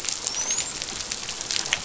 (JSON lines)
{"label": "biophony, dolphin", "recorder": "SoundTrap 500"}